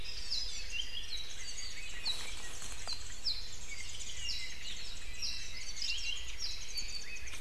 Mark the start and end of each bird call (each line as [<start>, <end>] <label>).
[0.01, 0.51] Hawaii Amakihi (Chlorodrepanis virens)
[0.60, 1.41] Apapane (Himatione sanguinea)
[1.00, 5.21] Warbling White-eye (Zosterops japonicus)
[2.00, 2.40] Apapane (Himatione sanguinea)
[2.81, 3.71] Apapane (Himatione sanguinea)
[4.21, 4.71] Apapane (Himatione sanguinea)
[5.11, 6.91] Apapane (Himatione sanguinea)
[5.50, 7.41] Warbling White-eye (Zosterops japonicus)